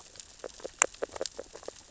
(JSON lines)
{"label": "biophony, grazing", "recorder": "SoundTrap 600 or HydroMoth"}